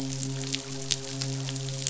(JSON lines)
{"label": "biophony, midshipman", "recorder": "SoundTrap 500"}